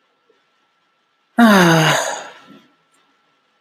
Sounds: Sigh